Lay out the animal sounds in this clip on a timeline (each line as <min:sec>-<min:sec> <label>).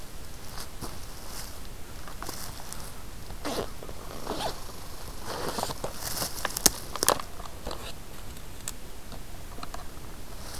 0:04.1-0:05.3 Red Squirrel (Tamiasciurus hudsonicus)